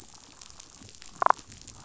{"label": "biophony, damselfish", "recorder": "SoundTrap 500"}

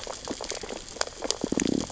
{"label": "biophony, sea urchins (Echinidae)", "recorder": "SoundTrap 600 or HydroMoth"}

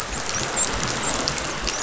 {"label": "biophony, dolphin", "recorder": "SoundTrap 500"}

